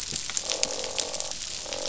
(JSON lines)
{"label": "biophony, croak", "recorder": "SoundTrap 500"}